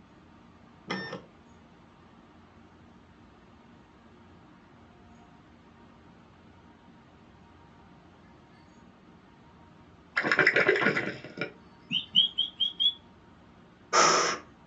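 At the start, the quiet sound of a printer is heard. After that, about 10 seconds in, gurgling is audible. Next, about 12 seconds in, there is chirping. Later, about 14 seconds in, you can hear breathing.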